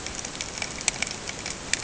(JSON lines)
{"label": "ambient", "recorder": "HydroMoth"}